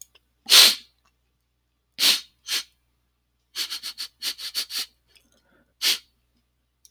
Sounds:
Sniff